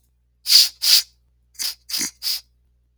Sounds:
Sniff